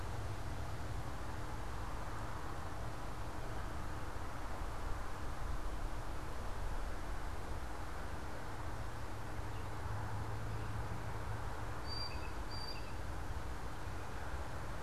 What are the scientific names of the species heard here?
Cyanocitta cristata